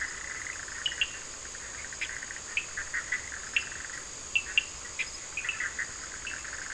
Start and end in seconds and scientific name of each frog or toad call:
0.0	6.7	Boana bischoffi
0.8	5.6	Sphaenorhynchus surdus